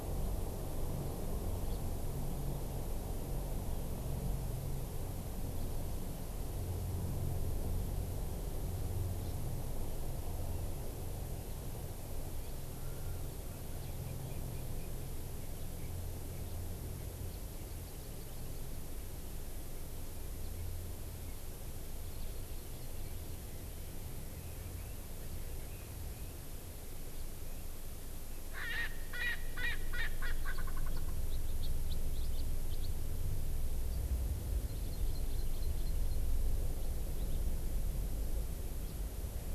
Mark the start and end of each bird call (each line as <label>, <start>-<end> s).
House Finch (Haemorhous mexicanus), 1.6-1.8 s
Erckel's Francolin (Pternistis erckelii), 28.5-31.1 s
House Finch (Haemorhous mexicanus), 32.1-32.8 s
Hawaii Amakihi (Chlorodrepanis virens), 34.6-36.2 s